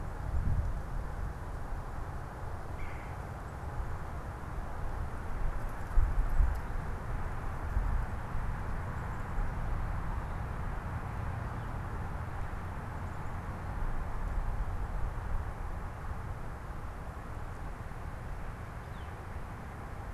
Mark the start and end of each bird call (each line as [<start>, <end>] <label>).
[2.61, 3.41] Red-bellied Woodpecker (Melanerpes carolinus)